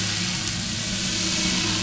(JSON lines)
{"label": "anthrophony, boat engine", "recorder": "SoundTrap 500"}